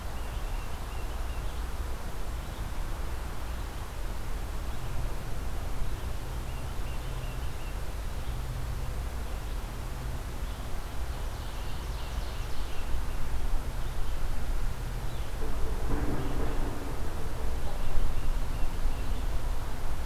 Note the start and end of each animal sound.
0.0s-1.6s: Tufted Titmouse (Baeolophus bicolor)
6.0s-8.1s: Tufted Titmouse (Baeolophus bicolor)
10.5s-13.1s: Ovenbird (Seiurus aurocapilla)
17.4s-19.5s: Tufted Titmouse (Baeolophus bicolor)

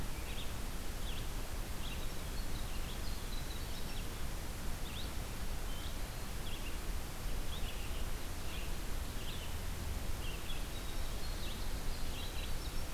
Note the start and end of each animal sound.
0.0s-12.9s: Red-eyed Vireo (Vireo olivaceus)
1.7s-4.1s: Winter Wren (Troglodytes hiemalis)
10.6s-12.9s: Winter Wren (Troglodytes hiemalis)

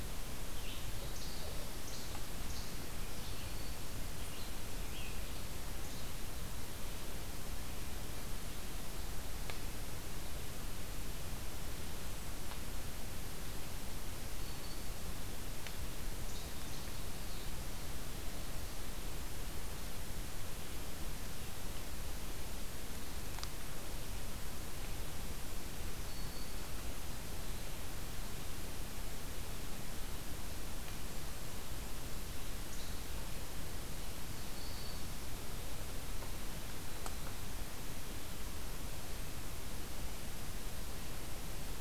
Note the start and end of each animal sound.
0.0s-5.3s: Red-eyed Vireo (Vireo olivaceus)
0.9s-3.3s: Least Flycatcher (Empidonax minimus)
2.8s-3.9s: Black-throated Green Warbler (Setophaga virens)
14.4s-14.9s: Black-throated Green Warbler (Setophaga virens)
25.9s-26.9s: Black-throated Green Warbler (Setophaga virens)
34.2s-35.1s: Black-throated Green Warbler (Setophaga virens)

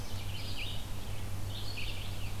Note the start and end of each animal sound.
0.0s-2.4s: Red-eyed Vireo (Vireo olivaceus)
1.8s-2.4s: Scarlet Tanager (Piranga olivacea)

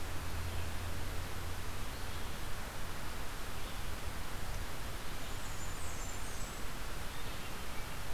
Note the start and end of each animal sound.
0.0s-8.1s: Red-eyed Vireo (Vireo olivaceus)
5.0s-6.7s: Blackburnian Warbler (Setophaga fusca)

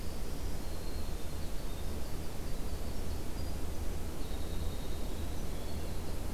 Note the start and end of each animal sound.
0.0s-6.3s: Winter Wren (Troglodytes hiemalis)

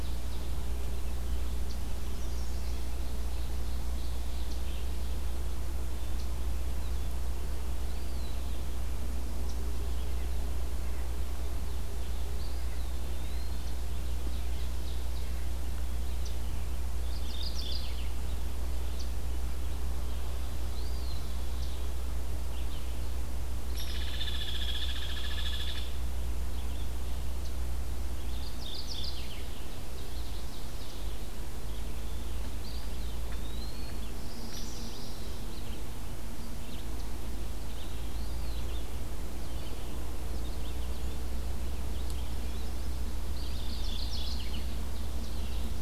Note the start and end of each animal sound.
0.0s-0.6s: Ovenbird (Seiurus aurocapilla)
0.0s-27.1s: Red-eyed Vireo (Vireo olivaceus)
1.9s-2.9s: Chestnut-sided Warbler (Setophaga pensylvanica)
2.8s-4.4s: Ovenbird (Seiurus aurocapilla)
7.7s-8.6s: Eastern Wood-Pewee (Contopus virens)
12.2s-13.6s: Eastern Wood-Pewee (Contopus virens)
13.7s-15.3s: Ovenbird (Seiurus aurocapilla)
16.9s-18.2s: Mourning Warbler (Geothlypis philadelphia)
20.7s-21.7s: Eastern Wood-Pewee (Contopus virens)
23.7s-26.1s: Hairy Woodpecker (Dryobates villosus)
28.2s-29.5s: Mourning Warbler (Geothlypis philadelphia)
29.5s-31.1s: Ovenbird (Seiurus aurocapilla)
31.4s-45.8s: Red-eyed Vireo (Vireo olivaceus)
32.6s-34.0s: Eastern Wood-Pewee (Contopus virens)
34.2s-35.4s: Chestnut-sided Warbler (Setophaga pensylvanica)
37.8s-38.8s: Eastern Wood-Pewee (Contopus virens)
43.4s-44.6s: Mourning Warbler (Geothlypis philadelphia)
44.5s-45.8s: Ovenbird (Seiurus aurocapilla)

